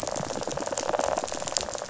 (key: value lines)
label: biophony
recorder: SoundTrap 500

label: biophony, rattle
recorder: SoundTrap 500